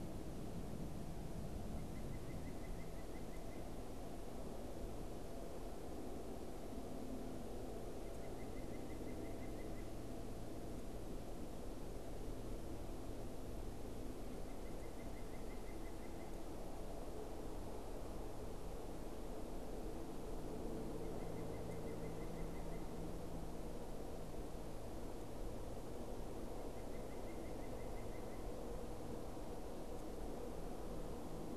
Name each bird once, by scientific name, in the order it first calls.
Sitta carolinensis